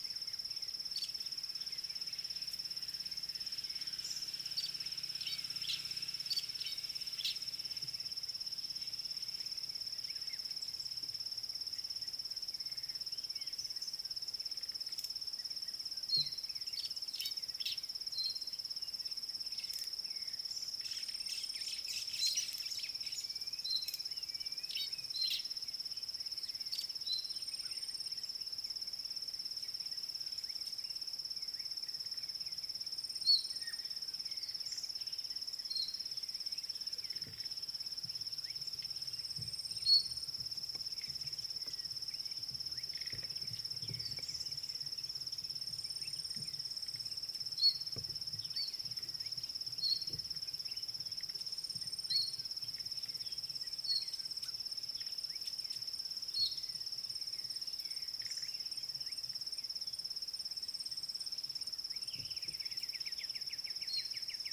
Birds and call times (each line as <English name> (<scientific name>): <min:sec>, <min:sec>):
Fork-tailed Drongo (Dicrurus adsimilis): 0:17.3
White-browed Sparrow-Weaver (Plocepasser mahali): 0:21.9